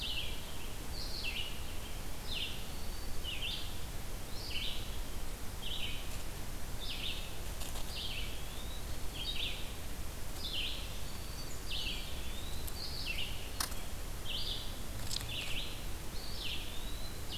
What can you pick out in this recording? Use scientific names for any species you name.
Vireo olivaceus, Setophaga virens, Contopus virens, Setophaga fusca